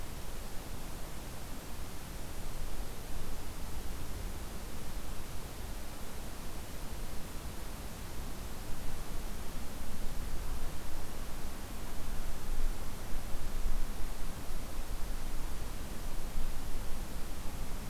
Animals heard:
forest ambience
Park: Hubbard Brook Experimental Forest